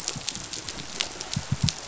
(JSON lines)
{"label": "biophony", "recorder": "SoundTrap 500"}